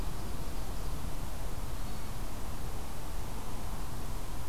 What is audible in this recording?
Hermit Thrush